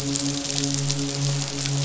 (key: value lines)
label: biophony, midshipman
recorder: SoundTrap 500